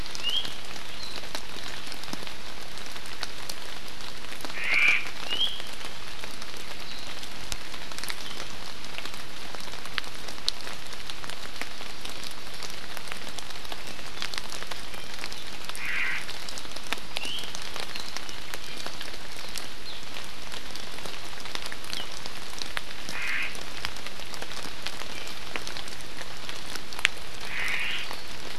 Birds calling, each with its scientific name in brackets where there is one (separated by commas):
Omao (Myadestes obscurus), Iiwi (Drepanis coccinea)